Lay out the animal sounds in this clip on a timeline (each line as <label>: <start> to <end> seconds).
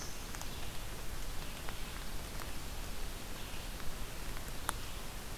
Red-eyed Vireo (Vireo olivaceus): 0.0 to 5.4 seconds